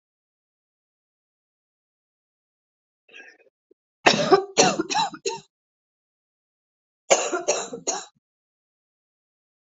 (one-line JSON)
{"expert_labels": [{"quality": "good", "cough_type": "wet", "dyspnea": false, "wheezing": false, "stridor": true, "choking": false, "congestion": false, "nothing": false, "diagnosis": "lower respiratory tract infection", "severity": "mild"}], "age": 28, "gender": "female", "respiratory_condition": false, "fever_muscle_pain": false, "status": "healthy"}